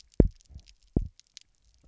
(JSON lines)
{"label": "biophony, double pulse", "recorder": "SoundTrap 300"}